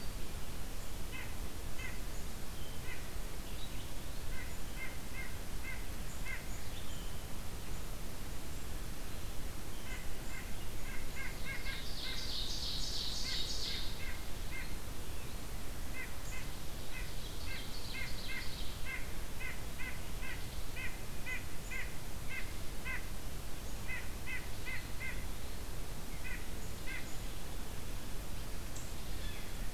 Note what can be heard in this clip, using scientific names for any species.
Sitta carolinensis, Seiurus aurocapilla, Cyanocitta cristata